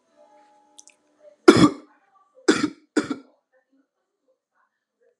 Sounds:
Cough